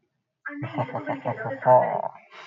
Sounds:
Laughter